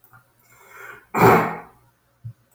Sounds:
Sneeze